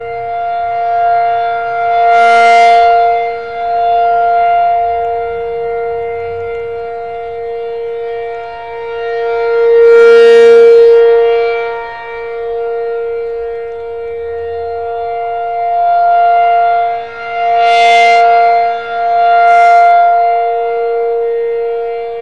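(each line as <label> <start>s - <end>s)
A siren is sounding. 0.2s - 22.2s
A siren is sounding sharply. 6.6s - 12.4s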